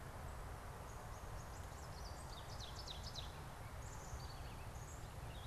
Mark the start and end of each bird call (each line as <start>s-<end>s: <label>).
0.0s-5.5s: Ovenbird (Seiurus aurocapilla)